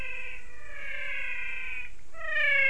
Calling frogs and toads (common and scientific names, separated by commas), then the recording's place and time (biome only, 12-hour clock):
menwig frog (Physalaemus albonotatus)
Cerrado, 5:45pm